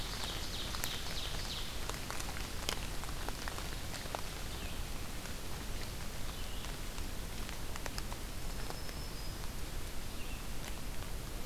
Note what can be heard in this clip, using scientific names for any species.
Seiurus aurocapilla, Vireo olivaceus, Setophaga virens